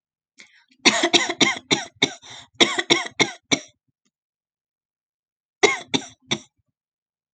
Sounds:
Cough